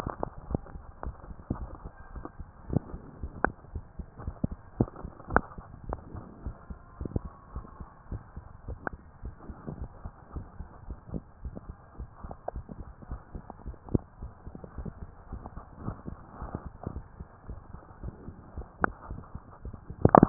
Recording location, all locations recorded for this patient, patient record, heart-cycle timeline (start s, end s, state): mitral valve (MV)
aortic valve (AV)+pulmonary valve (PV)+tricuspid valve (TV)+mitral valve (MV)
#Age: Adolescent
#Sex: Male
#Height: nan
#Weight: nan
#Pregnancy status: False
#Murmur: Absent
#Murmur locations: nan
#Most audible location: nan
#Systolic murmur timing: nan
#Systolic murmur shape: nan
#Systolic murmur grading: nan
#Systolic murmur pitch: nan
#Systolic murmur quality: nan
#Diastolic murmur timing: nan
#Diastolic murmur shape: nan
#Diastolic murmur grading: nan
#Diastolic murmur pitch: nan
#Diastolic murmur quality: nan
#Outcome: Normal
#Campaign: 2015 screening campaign
0.00	5.84	unannotated
5.84	6.00	S1
6.00	6.12	systole
6.12	6.24	S2
6.24	6.44	diastole
6.44	6.54	S1
6.54	6.68	systole
6.68	6.78	S2
6.78	6.98	diastole
6.98	7.12	S1
7.12	7.24	systole
7.24	7.32	S2
7.32	7.54	diastole
7.54	7.64	S1
7.64	7.80	systole
7.80	7.88	S2
7.88	8.10	diastole
8.10	8.22	S1
8.22	8.36	systole
8.36	8.46	S2
8.46	8.68	diastole
8.68	8.80	S1
8.80	8.92	systole
8.92	9.00	S2
9.00	9.24	diastole
9.24	9.34	S1
9.34	9.48	systole
9.48	9.58	S2
9.58	9.76	diastole
9.76	9.90	S1
9.90	10.02	systole
10.02	10.12	S2
10.12	10.34	diastole
10.34	10.48	S1
10.48	10.58	systole
10.58	10.68	S2
10.68	10.88	diastole
10.88	10.98	S1
10.98	11.12	systole
11.12	11.22	S2
11.22	11.44	diastole
11.44	11.54	S1
11.54	11.66	systole
11.66	11.76	S2
11.76	11.98	diastole
11.98	12.10	S1
12.10	12.24	systole
12.24	12.36	S2
12.36	12.54	diastole
12.54	12.66	S1
12.66	12.78	systole
12.78	12.88	S2
12.88	13.10	diastole
13.10	13.20	S1
13.20	13.34	systole
13.34	13.44	S2
13.44	13.66	diastole
13.66	13.76	S1
13.76	13.90	systole
13.90	13.98	S2
13.98	14.20	diastole
14.20	14.32	S1
14.32	14.46	systole
14.46	14.54	S2
14.54	14.78	diastole
14.78	14.94	S1
14.94	15.00	systole
15.00	15.10	S2
15.10	15.32	diastole
15.32	15.44	S1
15.44	15.56	systole
15.56	15.64	S2
15.64	15.80	diastole
15.80	15.96	S1
15.96	16.06	systole
16.06	16.18	S2
16.18	16.40	diastole
16.40	16.52	S1
16.52	16.64	systole
16.64	16.74	S2
16.74	16.92	diastole
16.92	17.06	S1
17.06	17.20	systole
17.20	20.29	unannotated